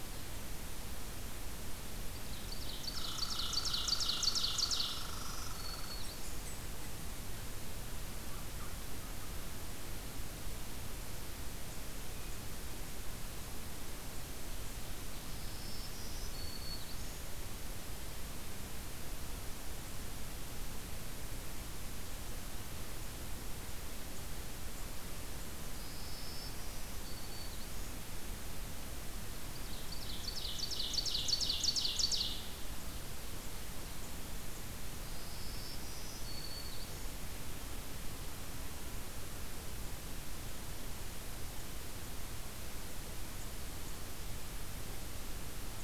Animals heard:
Black-throated Green Warbler (Setophaga virens), Red Squirrel (Tamiasciurus hudsonicus), Ovenbird (Seiurus aurocapilla)

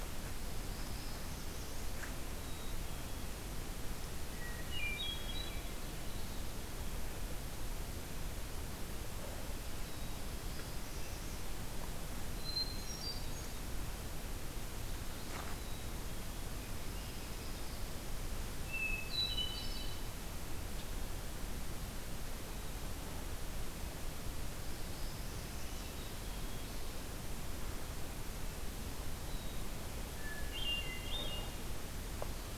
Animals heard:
Hermit Thrush (Catharus guttatus), Black-throated Blue Warbler (Setophaga caerulescens), Black-capped Chickadee (Poecile atricapillus)

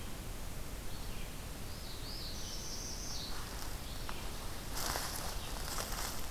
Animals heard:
Northern Parula (Setophaga americana), Red-eyed Vireo (Vireo olivaceus)

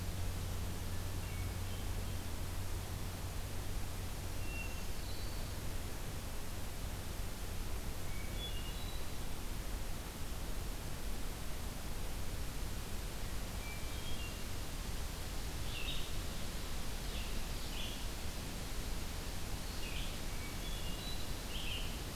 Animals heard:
Black-throated Green Warbler (Setophaga virens), Hermit Thrush (Catharus guttatus), Red-eyed Vireo (Vireo olivaceus)

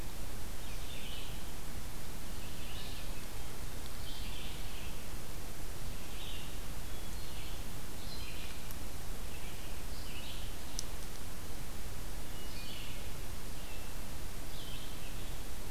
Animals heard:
Hermit Thrush (Catharus guttatus), Red-eyed Vireo (Vireo olivaceus)

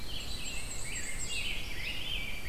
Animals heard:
Rose-breasted Grosbeak (Pheucticus ludovicianus), Black-and-white Warbler (Mniotilta varia), Red-eyed Vireo (Vireo olivaceus), Dark-eyed Junco (Junco hyemalis)

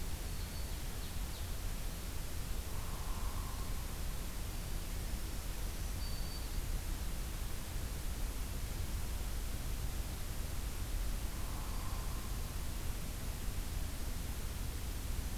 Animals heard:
Hairy Woodpecker (Dryobates villosus), Black-throated Green Warbler (Setophaga virens), Ovenbird (Seiurus aurocapilla)

